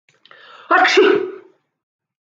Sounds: Sneeze